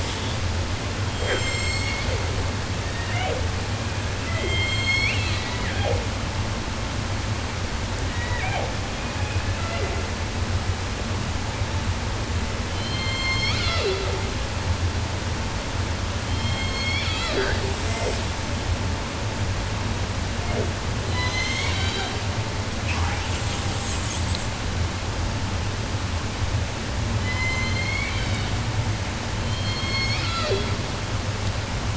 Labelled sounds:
0.9	2.4	killer whale, 0.33 to 8.0 kHz
2.7	6.1	killer whale, southern resident, J pod, call S01, 0.10 to 8.0 kHz
8.1	10.2	killer whale, southern resident, J pod, call S01, 0.10 to 4.6 kHz
12.6	14.4	killer whale, southern resident, J pod, call S01, 0.17 to 7.8 kHz
16.1	18.4	killer whale, southern resident, J pod, call S01, 0.24 to 8.0 kHz
20.2	22.3	killer whale, southern resident, J pod, call S01, 0.10 to 8.0 kHz
22.8	24.5	killer whale, southern resident, 0.10 to 8.0 kHz
27.1	28.6	killer whale, southern resident, J pod, call S01, 0.10 to 8.0 kHz
29.3	30.9	killer whale, southern resident, J pod, call S01, 0.10 to 8.0 kHz

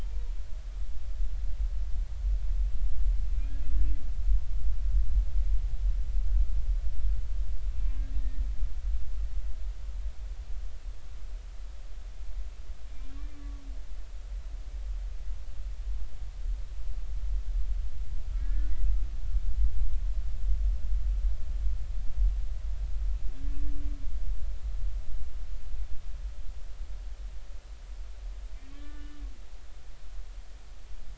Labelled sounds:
13.3	13.6	humpback whale, 1.1 to 1.2 kHz
18.4	18.7	humpback whale, 1.6 to 1.8 kHz
23.4	23.6	humpback whale, 1.6 to 1.8 kHz
28.7	29.2	humpback whale, 1.4 to 3.0 kHz

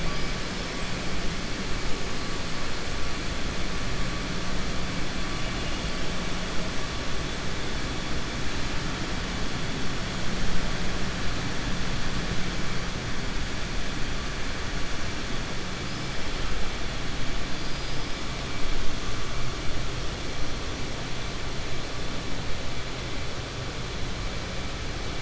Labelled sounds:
17.5	18.1	killer whale, 4.4 to 5.6 kHz

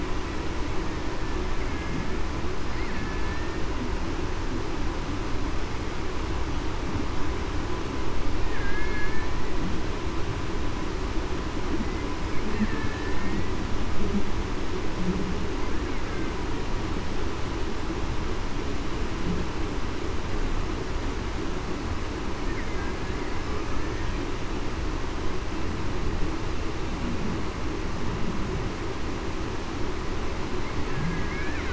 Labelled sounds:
1.6	2.0	killer whale, Bigg's (transient), 2.1 to 2.2 kHz
2.9	3.6	killer whale, Bigg's (transient), 1.7 to 1.9 kHz
8.6	9.1	killer whale, Bigg's (transient), 2.0 to 2.2 kHz
12.7	13.5	killer whale, Bigg's (transient), 1.7 to 2.0 kHz
30.9	31.3	killer whale, Bigg's (transient), 1.6 to 1.8 kHz

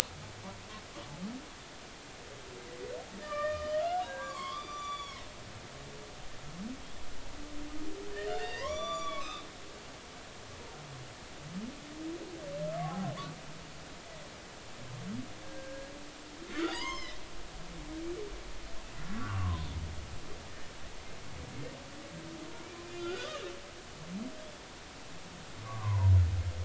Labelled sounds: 3.2	5.3	humpback whale, 0.93 to 7.0 kHz
8.2	9.5	humpback whale, 0.93 to 7.1 kHz
12.8	13.1	humpback whale, 0.80 to 0.86 kHz
15.4	15.9	humpback whale, 1.5 to 1.7 kHz
16.5	17.2	humpback whale, 0.90 to 6.5 kHz
19.1	19.7	humpback whale, 0.96 to 1.6 kHz
22.9	23.3	humpback whale, 1.3 to 4.9 kHz
25.6	26.1	humpback whale, 0.86 to 1.2 kHz

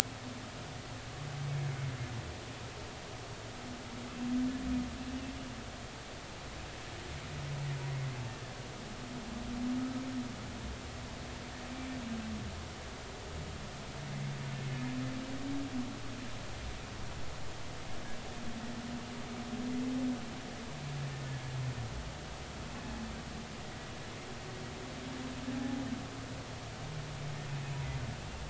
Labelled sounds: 25.5	25.8	humpback whale, 0.80 to 0.86 kHz

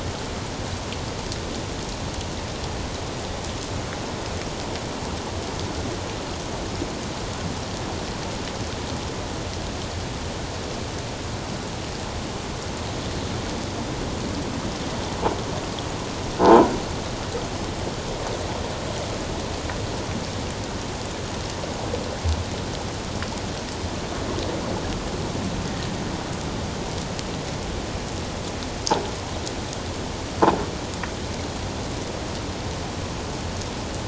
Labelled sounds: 16.4	16.7	croaking sound likely from a nearby submerged object, 0.78 to 1.1 kHz

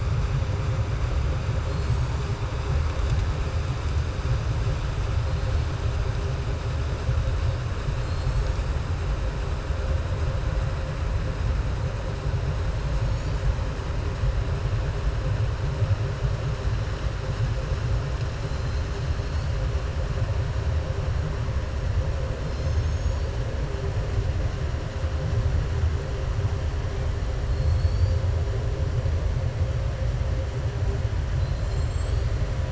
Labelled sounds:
18.4	19.1	killer whale, southern resident, 3.7 to 5.0 kHz
27.5	28.2	killer whale, southern resident, 3.4 to 5.7 kHz
31.3	32.3	killer whale, southern resident, 3.3 to 8.0 kHz

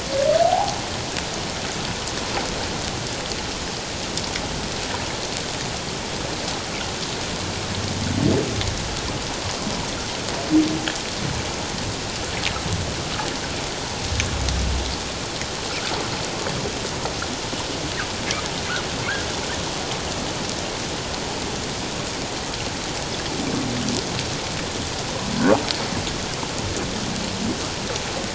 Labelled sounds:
0.4	0.8	humpback whale, 0.78 to 1.0 kHz

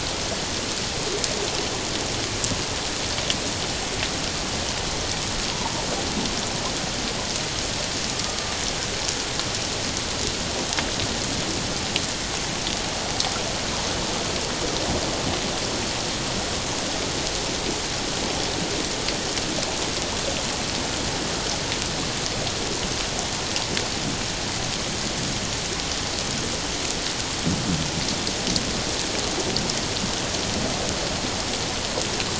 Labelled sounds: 8.1	8.4	killer whale, 1.1 to 1.3 kHz

